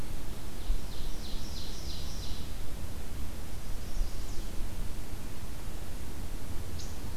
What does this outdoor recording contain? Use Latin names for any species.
Seiurus aurocapilla, Setophaga pensylvanica, Tamiasciurus hudsonicus